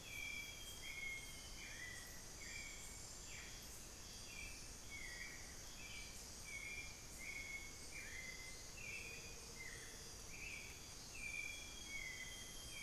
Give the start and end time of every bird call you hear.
0.0s-1.9s: Amazonian Grosbeak (Cyanoloxia rothschildii)
0.0s-3.8s: unidentified bird
0.0s-12.8s: Hauxwell's Thrush (Turdus hauxwelli)
8.5s-11.2s: Amazonian Motmot (Momotus momota)
11.2s-12.8s: Amazonian Grosbeak (Cyanoloxia rothschildii)

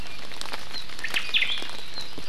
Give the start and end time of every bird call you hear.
1.0s-1.8s: Omao (Myadestes obscurus)

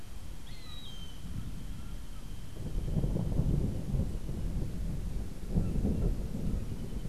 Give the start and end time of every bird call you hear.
0.3s-1.3s: Gray Hawk (Buteo plagiatus)

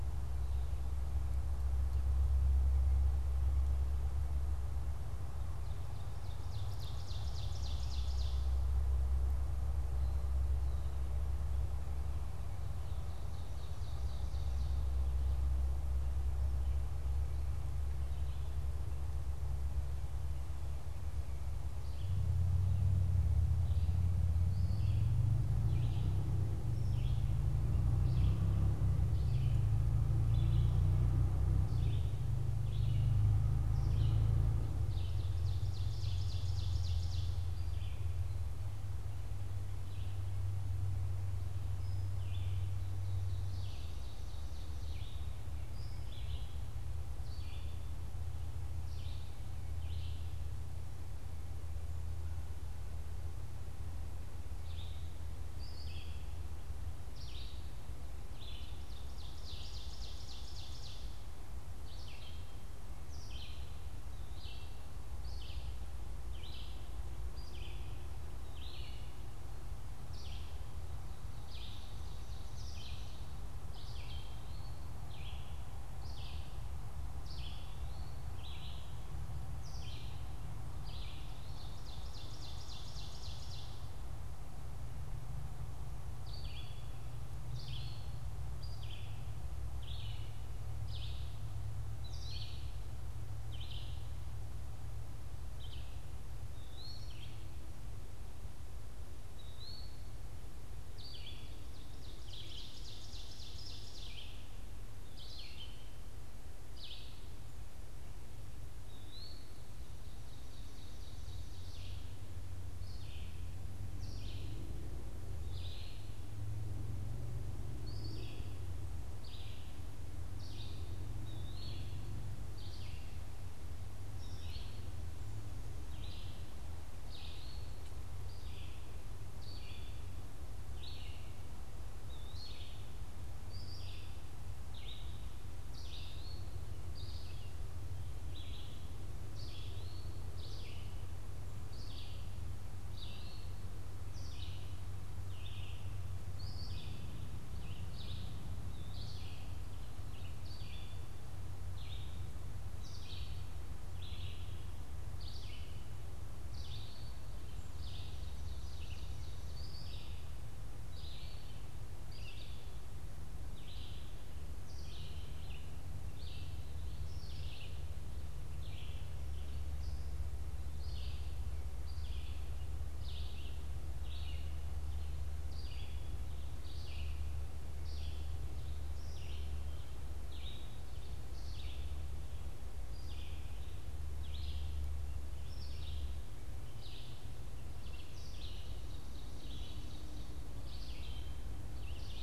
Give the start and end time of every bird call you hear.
5.4s-8.8s: Ovenbird (Seiurus aurocapilla)
12.3s-15.1s: Ovenbird (Seiurus aurocapilla)
21.4s-81.6s: Red-eyed Vireo (Vireo olivaceus)
34.6s-37.6s: Ovenbird (Seiurus aurocapilla)
43.0s-45.2s: Ovenbird (Seiurus aurocapilla)
58.4s-61.3s: Ovenbird (Seiurus aurocapilla)
80.9s-83.8s: Ovenbird (Seiurus aurocapilla)
86.1s-192.2s: Red-eyed Vireo (Vireo olivaceus)
87.2s-140.3s: Eastern Wood-Pewee (Contopus virens)
101.5s-104.6s: Ovenbird (Seiurus aurocapilla)
109.6s-112.2s: Ovenbird (Seiurus aurocapilla)
142.7s-161.6s: Eastern Wood-Pewee (Contopus virens)
157.5s-159.8s: Ovenbird (Seiurus aurocapilla)
188.2s-190.6s: Ovenbird (Seiurus aurocapilla)

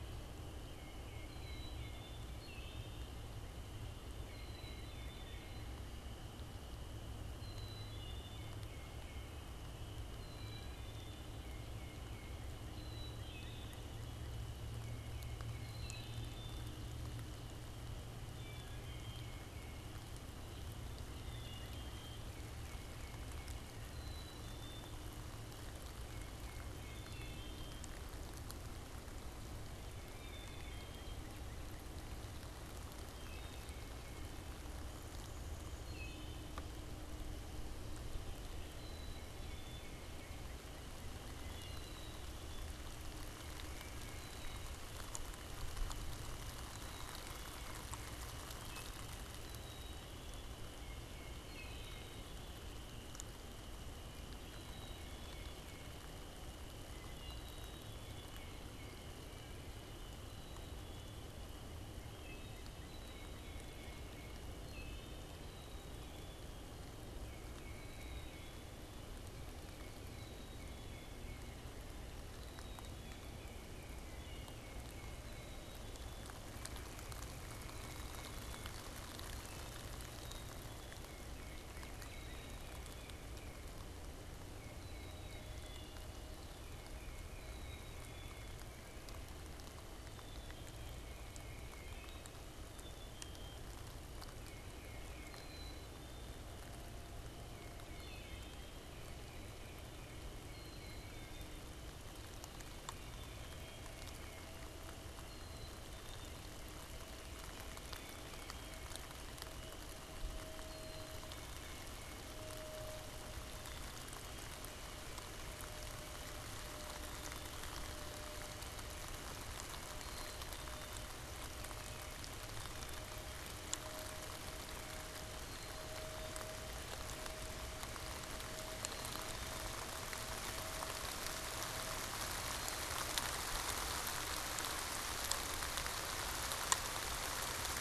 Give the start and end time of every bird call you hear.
1.1s-2.5s: Black-capped Chickadee (Poecile atricapillus)
4.1s-41.2s: Tufted Titmouse (Baeolophus bicolor)
4.1s-55.8s: Black-capped Chickadee (Poecile atricapillus)
26.8s-27.7s: Wood Thrush (Hylocichla mustelina)
35.6s-36.6s: Wood Thrush (Hylocichla mustelina)
41.3s-42.3s: Wood Thrush (Hylocichla mustelina)
51.3s-52.4s: Wood Thrush (Hylocichla mustelina)
56.9s-106.6s: Black-capped Chickadee (Poecile atricapillus)
57.8s-104.8s: Tufted Titmouse (Baeolophus bicolor)
61.8s-64.5s: Northern Cardinal (Cardinalis cardinalis)
80.0s-83.8s: Northern Cardinal (Cardinalis cardinalis)
107.7s-129.9s: Black-capped Chickadee (Poecile atricapillus)

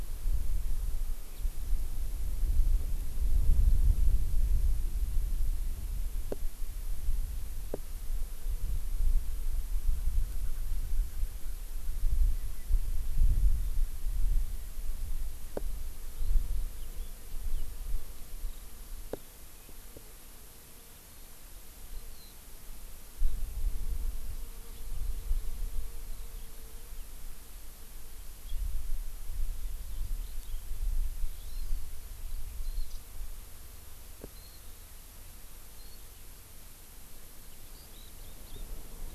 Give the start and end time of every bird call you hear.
16.1s-22.3s: Eurasian Skylark (Alauda arvensis)
29.5s-33.0s: Eurasian Skylark (Alauda arvensis)
34.4s-34.6s: Warbling White-eye (Zosterops japonicus)
35.8s-36.0s: Warbling White-eye (Zosterops japonicus)
37.7s-38.6s: Eurasian Skylark (Alauda arvensis)

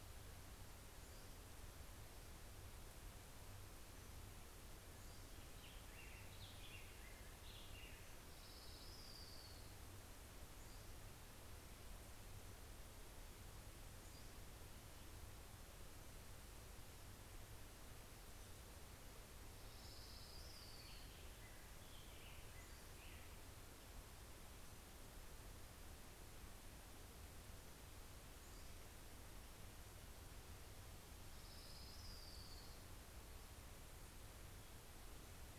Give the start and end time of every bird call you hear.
0.0s-2.1s: Pacific-slope Flycatcher (Empidonax difficilis)
4.0s-5.8s: Pacific-slope Flycatcher (Empidonax difficilis)
5.1s-9.8s: Black-headed Grosbeak (Pheucticus melanocephalus)
7.6s-10.9s: Orange-crowned Warbler (Leiothlypis celata)
13.5s-15.3s: Pacific-slope Flycatcher (Empidonax difficilis)
18.8s-23.3s: Orange-crowned Warbler (Leiothlypis celata)
18.8s-25.3s: Black-headed Grosbeak (Pheucticus melanocephalus)
28.0s-29.5s: Pacific-slope Flycatcher (Empidonax difficilis)
30.4s-33.8s: Orange-crowned Warbler (Leiothlypis celata)

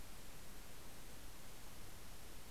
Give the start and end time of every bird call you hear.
0.1s-2.5s: Red-breasted Nuthatch (Sitta canadensis)

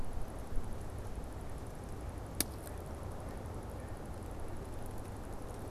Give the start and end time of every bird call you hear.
2.6s-4.6s: Mallard (Anas platyrhynchos)

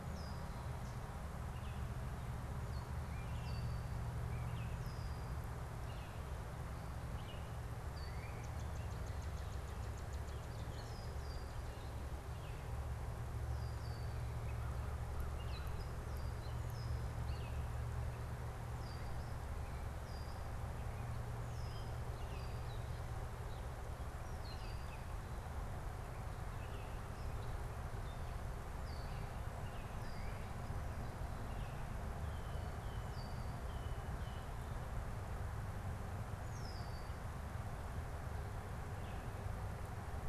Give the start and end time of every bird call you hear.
0.0s-37.2s: Red-winged Blackbird (Agelaius phoeniceus)
1.4s-6.4s: Baltimore Oriole (Icterus galbula)
7.0s-7.7s: Baltimore Oriole (Icterus galbula)
7.8s-11.9s: Northern Cardinal (Cardinalis cardinalis)
14.4s-16.1s: American Crow (Corvus brachyrhynchos)

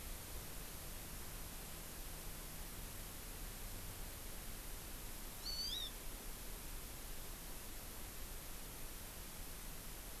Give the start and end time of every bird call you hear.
5.4s-5.9s: Hawaii Amakihi (Chlorodrepanis virens)

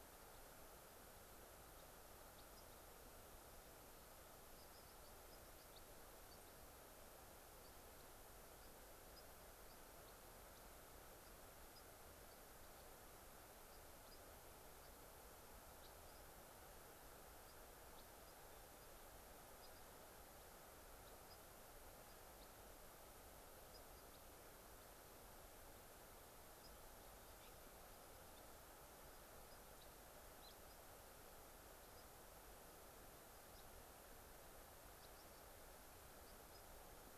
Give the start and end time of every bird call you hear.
2.5s-2.8s: unidentified bird
4.5s-5.8s: unidentified bird

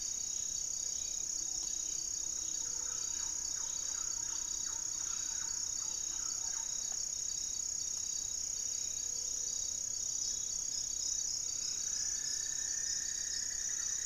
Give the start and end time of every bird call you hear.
0.0s-2.4s: Ruddy Pigeon (Patagioenas subvinacea)
0.0s-4.8s: unidentified bird
0.0s-10.0s: Gray-fronted Dove (Leptotila rufaxilla)
0.0s-14.1s: Amazonian Trogon (Trogon ramonianus)
2.3s-7.1s: Thrush-like Wren (Campylorhynchus turdinus)
11.3s-14.1s: Cinnamon-throated Woodcreeper (Dendrexetastes rufigula)

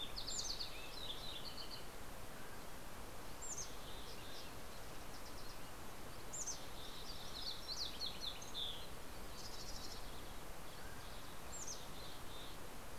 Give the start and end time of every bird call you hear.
0.0s-9.9s: Green-tailed Towhee (Pipilo chlorurus)
0.2s-2.0s: Mountain Chickadee (Poecile gambeli)
2.0s-2.9s: Mountain Quail (Oreortyx pictus)
3.2s-4.8s: Mountain Chickadee (Poecile gambeli)
4.0s-4.6s: Mountain Quail (Oreortyx pictus)
6.2s-7.6s: Mountain Chickadee (Poecile gambeli)
10.5s-11.3s: Mountain Quail (Oreortyx pictus)
10.9s-12.9s: Mountain Chickadee (Poecile gambeli)

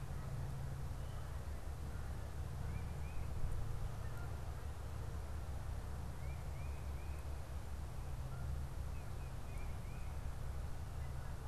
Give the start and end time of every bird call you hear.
0.0s-11.5s: Canada Goose (Branta canadensis)
2.6s-3.3s: Tufted Titmouse (Baeolophus bicolor)
6.0s-7.4s: Tufted Titmouse (Baeolophus bicolor)
9.4s-10.2s: Tufted Titmouse (Baeolophus bicolor)

